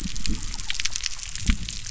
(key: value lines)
label: biophony
recorder: SoundTrap 300